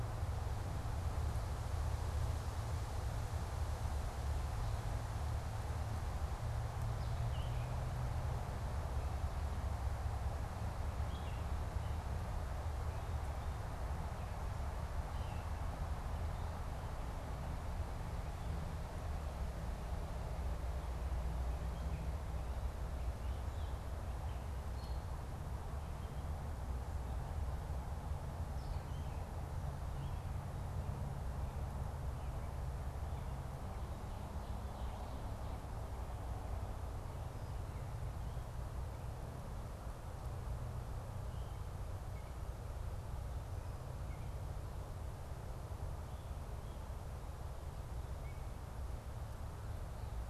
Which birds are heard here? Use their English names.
Gray Catbird